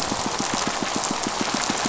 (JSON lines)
{"label": "biophony, pulse", "recorder": "SoundTrap 500"}